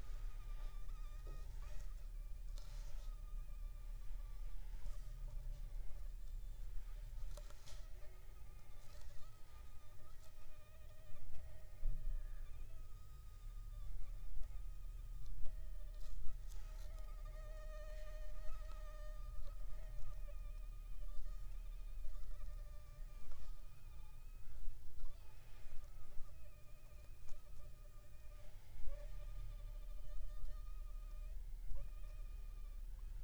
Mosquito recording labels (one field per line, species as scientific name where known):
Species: Anopheles funestus s.s.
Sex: female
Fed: unfed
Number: one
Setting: cup